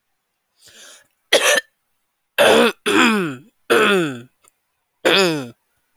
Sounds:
Throat clearing